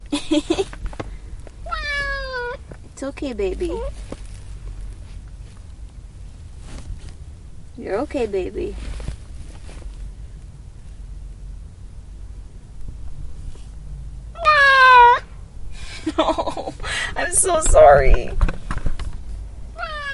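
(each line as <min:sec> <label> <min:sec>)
0:00.0 A woman laughs. 0:00.8
0:01.3 Rattling of plastic. 0:04.2
0:01.6 A cat meows loudly. 0:02.7
0:02.9 A woman is speaking closely. 0:04.1
0:03.8 A cat squeaks. 0:04.0
0:06.7 Shallow movement on a car seat. 0:11.1
0:07.8 A woman is speaking closely. 0:08.9
0:14.4 A cat meows loudly. 0:15.2
0:16.1 A woman is speaking. 0:18.3
0:18.3 Plastic is rattling. 0:19.2
0:19.6 A cat meows. 0:20.1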